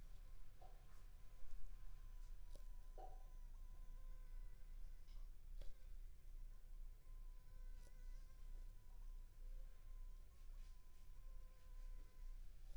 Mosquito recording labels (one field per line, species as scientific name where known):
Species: Anopheles funestus s.s.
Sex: female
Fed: unfed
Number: one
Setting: cup